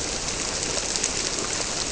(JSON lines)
{"label": "biophony", "recorder": "SoundTrap 300"}